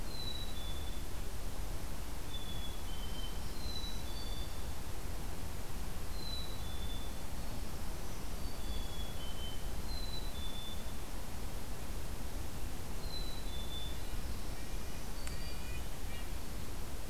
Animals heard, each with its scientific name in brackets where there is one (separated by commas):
Black-capped Chickadee (Poecile atricapillus), Red-breasted Nuthatch (Sitta canadensis), Black-throated Green Warbler (Setophaga virens)